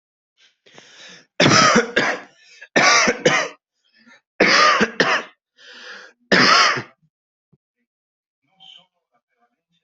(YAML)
expert_labels:
- quality: good
  cough_type: dry
  dyspnea: false
  wheezing: false
  stridor: false
  choking: false
  congestion: false
  nothing: true
  diagnosis: COVID-19
  severity: mild
age: 18
gender: male
respiratory_condition: true
fever_muscle_pain: false
status: healthy